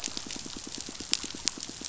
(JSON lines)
{"label": "biophony, pulse", "recorder": "SoundTrap 500"}